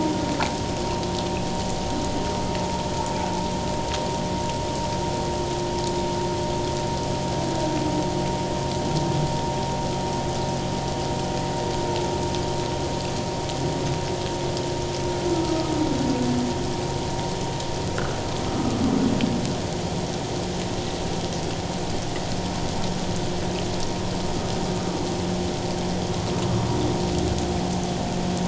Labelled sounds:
15.3	15.7	humpback whale, 1.2 to 1.4 kHz
17.9	18.8	humpback whale, 1.1 to 1.7 kHz

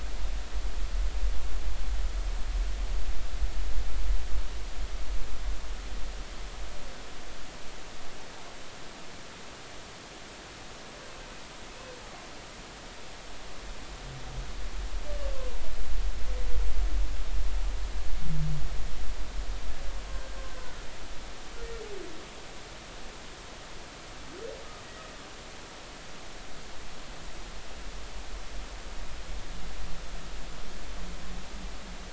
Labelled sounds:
15.3	15.6	humpback whale, 0.90 to 1.1 kHz
20.5	20.8	humpback whale, 1.4 to 1.7 kHz

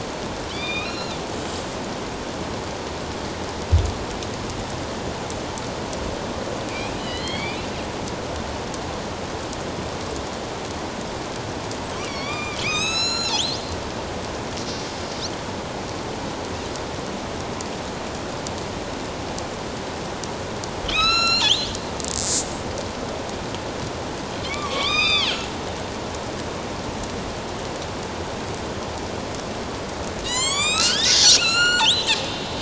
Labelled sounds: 0.5	1.2	killer whale, northern resident, A clan, AB subclan, 2.2 to 5.6 kHz
6.7	7.6	killer whale, northern resident, A clan, AB subclan, 1.9 to 4.9 kHz
12.0	13.6	killer whale, northern resident, A clan, AB subclan, 1.1 to 8.0 kHz
20.8	21.7	killer whale, northern resident, A clan, AB subclan, 1.2 to 7.9 kHz
24.4	25.5	killer whale, northern resident, A clan, AB subclan, 1.0 to 5.7 kHz
30.2	32.6	killer whale, northern resident, A clan, AB subclan, 0.94 to 8.0 kHz

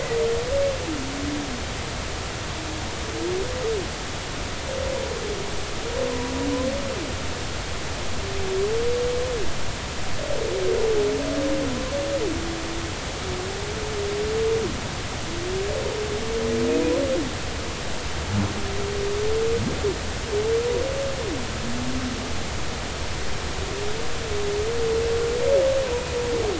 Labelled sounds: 6.1	6.3	humpback whale, 0.90 to 1.1 kHz

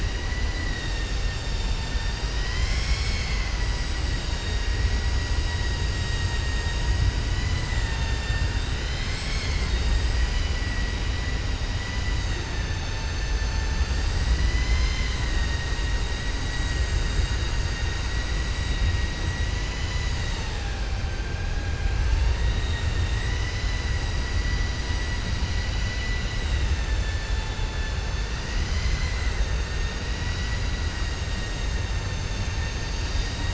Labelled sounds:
4.1	4.6	vessel noise, 2.8 to 4.7 kHz
7.3	8.7	vessel noise, 0.90 to 4.6 kHz
25.2	26.6	vessel noise, 2.0 to 5.1 kHz

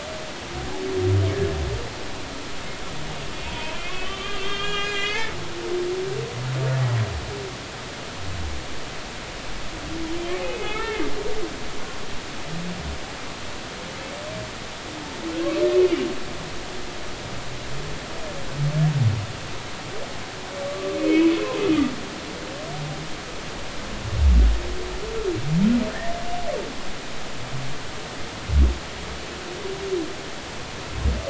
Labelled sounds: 3.3	5.4	humpback whale, 0.90 to 4.2 kHz
10.4	11.0	humpback whale, 1.6 to 2.8 kHz
20.6	21.3	humpback whale, 1.1 to 2.7 kHz

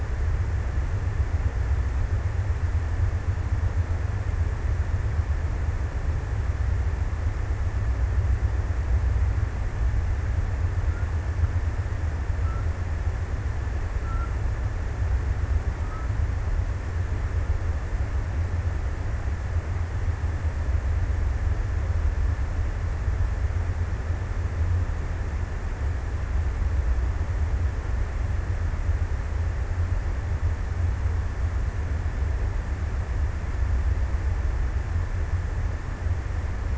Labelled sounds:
10.2	18.0	killer whale, Bigg's (transient), 0.98 to 1.6 kHz

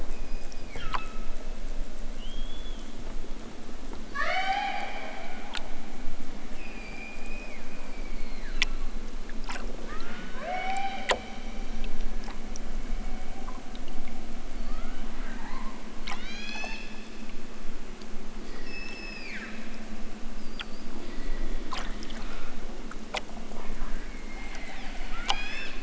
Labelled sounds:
0.0	1.6	killer whale, southern Alaska resident, 1.1 to 5.3 kHz
2.1	3.0	killer whale, southern Alaska resident, 2.4 to 7.3 kHz
4.0	5.5	killer whale, southern Alaska resident, 0.41 to 8.0 kHz
6.4	8.9	killer whale, southern Alaska resident, 0.92 to 5.5 kHz
9.7	11.2	killer whale, southern Alaska resident, 0.28 to 5.9 kHz
14.5	15.1	killer whale, southern Alaska resident, 0.83 to 4.9 kHz
16.1	17.0	killer whale, southern Alaska resident, 1.0 to 8.0 kHz
18.6	19.6	killer whale, southern Alaska resident, 1.0 to 5.8 kHz
24.0	25.7	killer whale, southern Alaska resident, 0.92 to 8.0 kHz

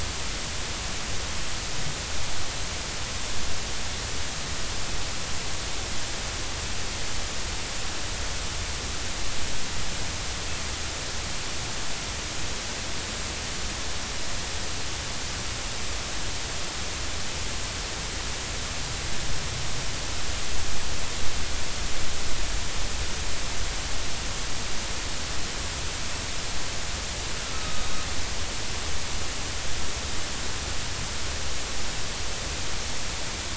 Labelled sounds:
27.5	27.9	killer whale, northern resident, A clan, AA subclan, 1.2 to 1.4 kHz

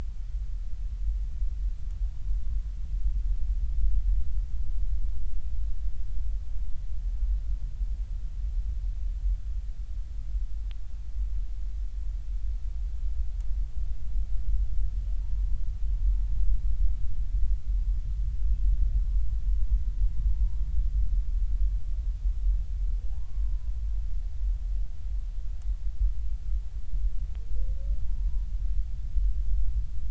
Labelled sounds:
20.3	20.6	humpback whale, 0.86 to 0.99 kHz
23.1	23.7	humpback whale, 0.80 to 1.1 kHz

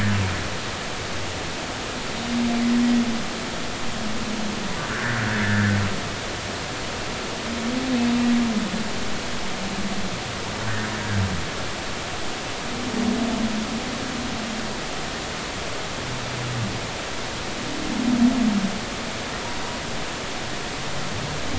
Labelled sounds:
5.9	6.2	humpback whale, 1.3 to 2.0 kHz

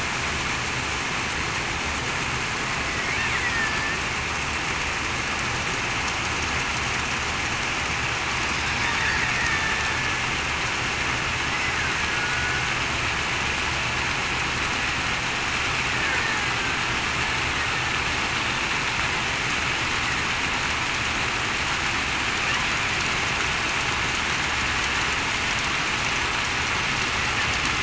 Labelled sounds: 3.5	4.0	killer whale, Bigg's (transient), 1.7 to 1.9 kHz
9.3	9.7	killer whale, Bigg's (transient), 1.7 to 1.9 kHz
12.1	12.5	killer whale, Bigg's (transient), 1.4 to 1.5 kHz

